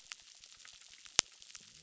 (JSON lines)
{"label": "biophony", "recorder": "SoundTrap 600"}